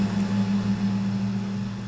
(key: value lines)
label: anthrophony, boat engine
recorder: SoundTrap 500